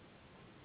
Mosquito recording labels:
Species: Anopheles gambiae s.s.; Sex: female; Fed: unfed; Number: one; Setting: insect culture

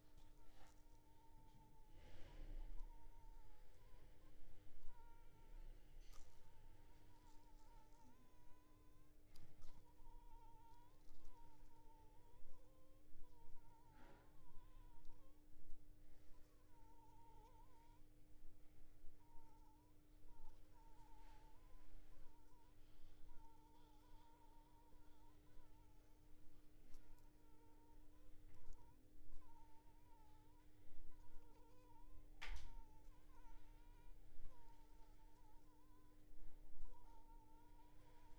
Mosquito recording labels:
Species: Anopheles funestus s.s.; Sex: female; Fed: unfed; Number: one; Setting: cup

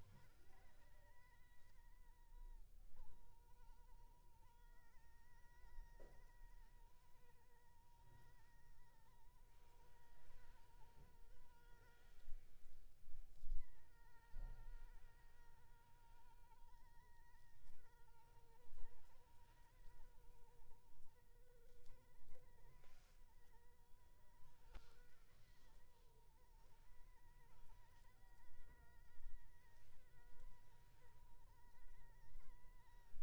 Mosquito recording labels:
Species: Anopheles arabiensis; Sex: female; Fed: unfed; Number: one; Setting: cup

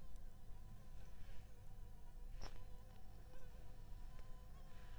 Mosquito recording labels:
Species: Anopheles arabiensis; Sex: female; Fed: unfed; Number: one; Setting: cup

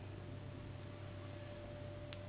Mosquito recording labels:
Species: Anopheles gambiae s.s.; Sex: female; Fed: unfed; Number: one; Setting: insect culture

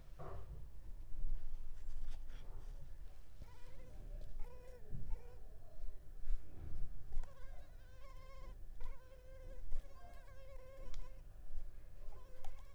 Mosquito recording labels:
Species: Culex pipiens complex; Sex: female; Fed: unfed; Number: one; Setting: cup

